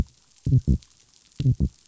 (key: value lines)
label: biophony
recorder: SoundTrap 500